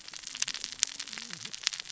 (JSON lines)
{"label": "biophony, cascading saw", "recorder": "SoundTrap 600 or HydroMoth"}